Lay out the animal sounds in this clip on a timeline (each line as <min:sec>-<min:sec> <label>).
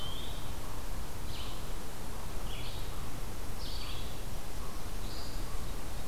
0:00.0-0:00.6 Eastern Wood-Pewee (Contopus virens)
0:00.0-0:06.1 Eastern Chipmunk (Tamias striatus)
0:00.0-0:06.1 Red-eyed Vireo (Vireo olivaceus)